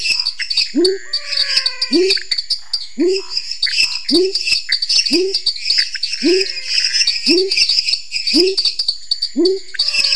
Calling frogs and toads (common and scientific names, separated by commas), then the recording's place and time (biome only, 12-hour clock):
lesser tree frog (Dendropsophus minutus), dwarf tree frog (Dendropsophus nanus), pepper frog (Leptodactylus labyrinthicus), pointedbelly frog (Leptodactylus podicipinus), Pithecopus azureus, Scinax fuscovarius, menwig frog (Physalaemus albonotatus)
Cerrado, 9:45pm